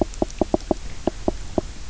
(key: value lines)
label: biophony, knock croak
recorder: SoundTrap 300